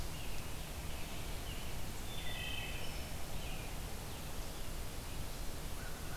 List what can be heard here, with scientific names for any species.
Turdus migratorius, Vireo solitarius, Hylocichla mustelina, Corvus brachyrhynchos